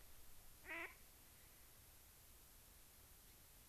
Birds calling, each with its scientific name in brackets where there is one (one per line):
Gray-crowned Rosy-Finch (Leucosticte tephrocotis)
Mallard (Anas platyrhynchos)